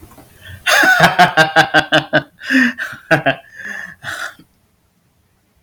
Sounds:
Laughter